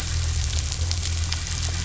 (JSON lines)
{"label": "anthrophony, boat engine", "recorder": "SoundTrap 500"}